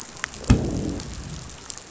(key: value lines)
label: biophony, growl
recorder: SoundTrap 500